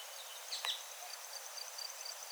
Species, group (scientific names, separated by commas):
Gryllus campestris, Orthoptera